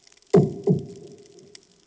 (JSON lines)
{"label": "anthrophony, bomb", "recorder": "HydroMoth"}